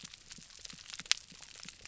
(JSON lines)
{"label": "biophony", "recorder": "SoundTrap 300"}